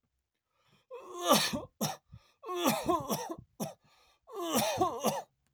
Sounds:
Cough